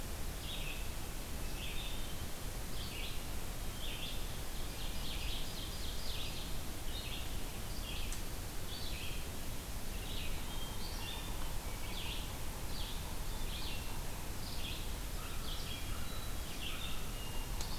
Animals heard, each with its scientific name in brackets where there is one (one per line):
Yellow-bellied Sapsucker (Sphyrapicus varius)
Red-eyed Vireo (Vireo olivaceus)
Ovenbird (Seiurus aurocapilla)
American Crow (Corvus brachyrhynchos)
Hermit Thrush (Catharus guttatus)